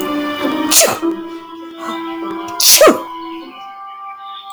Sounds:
Sneeze